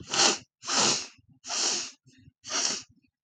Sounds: Sniff